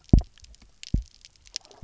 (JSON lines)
{"label": "biophony, double pulse", "recorder": "SoundTrap 300"}